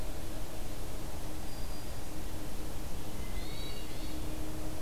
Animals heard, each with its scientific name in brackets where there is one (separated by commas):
Hermit Thrush (Catharus guttatus)